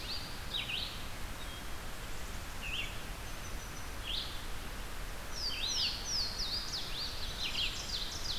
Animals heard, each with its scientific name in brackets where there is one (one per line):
Louisiana Waterthrush (Parkesia motacilla)
Ovenbird (Seiurus aurocapilla)
Red-eyed Vireo (Vireo olivaceus)
Black-capped Chickadee (Poecile atricapillus)